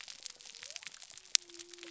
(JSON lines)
{"label": "biophony", "recorder": "SoundTrap 300"}